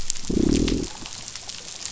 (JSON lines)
{"label": "biophony, growl", "recorder": "SoundTrap 500"}